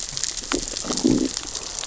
{"label": "biophony, growl", "recorder": "SoundTrap 600 or HydroMoth"}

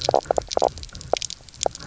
{"label": "biophony, knock croak", "recorder": "SoundTrap 300"}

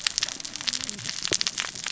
{"label": "biophony, cascading saw", "recorder": "SoundTrap 600 or HydroMoth"}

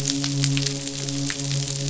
{"label": "biophony, midshipman", "recorder": "SoundTrap 500"}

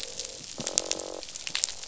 {"label": "biophony, croak", "recorder": "SoundTrap 500"}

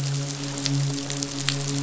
{"label": "biophony, midshipman", "recorder": "SoundTrap 500"}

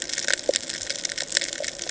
{"label": "ambient", "recorder": "HydroMoth"}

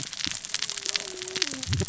{"label": "biophony, cascading saw", "recorder": "SoundTrap 600 or HydroMoth"}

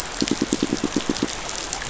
{"label": "biophony, pulse", "recorder": "SoundTrap 500"}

